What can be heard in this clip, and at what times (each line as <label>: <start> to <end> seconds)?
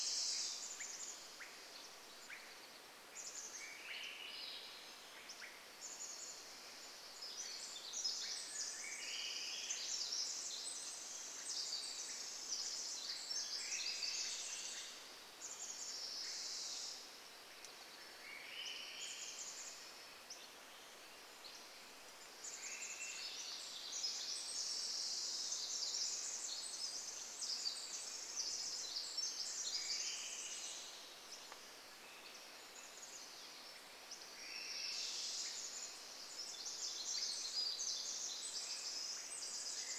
Pacific Wren song: 0 to 2 seconds
Swainson's Thrush call: 0 to 6 seconds
Chestnut-backed Chickadee call: 0 to 8 seconds
Swainson's Thrush song: 2 to 6 seconds
Pacific Wren song: 6 to 16 seconds
Swainson's Thrush song: 8 to 10 seconds
Swainson's Thrush call: 8 to 14 seconds
Swainson's Thrush song: 12 to 14 seconds
Brown Creeper call: 14 to 16 seconds
Chestnut-backed Chickadee call: 14 to 16 seconds
Swainson's Thrush call: 16 to 18 seconds
Wilson's Warbler song: 16 to 18 seconds
Chestnut-backed Chickadee call: 18 to 20 seconds
Swainson's Thrush song: 18 to 20 seconds
Hammond's Flycatcher song: 20 to 22 seconds
Chestnut-backed Chickadee call: 22 to 24 seconds
Swainson's Thrush call: 22 to 24 seconds
Pacific Wren song: 22 to 32 seconds
Swainson's Thrush song: 28 to 32 seconds
Hammond's Flycatcher song: 32 to 34 seconds
Chestnut-backed Chickadee call: 32 to 36 seconds
Swainson's Thrush song: 34 to 36 seconds
Wilson's Warbler song: 34 to 36 seconds
Swainson's Thrush call: 34 to 40 seconds
Pacific Wren song: 36 to 40 seconds
Swainson's Thrush song: 38 to 40 seconds